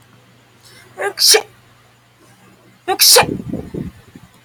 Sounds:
Sneeze